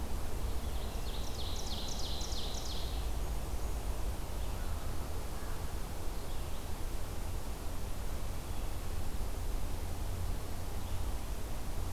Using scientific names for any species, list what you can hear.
Seiurus aurocapilla, Setophaga fusca